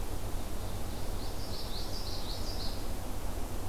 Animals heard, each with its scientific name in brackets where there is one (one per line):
Ovenbird (Seiurus aurocapilla)
Common Yellowthroat (Geothlypis trichas)